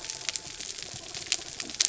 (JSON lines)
{"label": "biophony", "recorder": "SoundTrap 300"}
{"label": "anthrophony, mechanical", "recorder": "SoundTrap 300"}